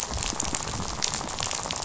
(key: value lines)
label: biophony, rattle
recorder: SoundTrap 500